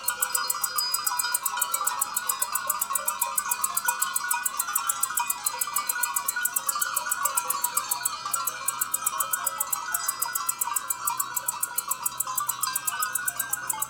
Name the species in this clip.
Decticus albifrons